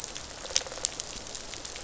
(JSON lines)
{"label": "biophony, rattle response", "recorder": "SoundTrap 500"}